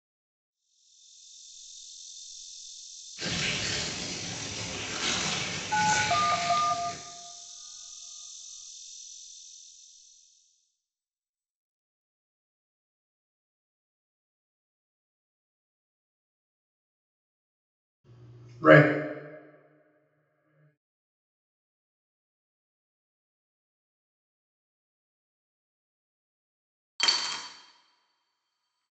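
From 0.5 to 10.9 seconds, a quiet insect sound fades in and fades out. Over it, at 3.2 seconds, tearing is audible. Meanwhile, at 5.7 seconds, you can hear a telephone. After that, at 18.6 seconds, someone says "Right." Finally, at 27.0 seconds, a coin drops.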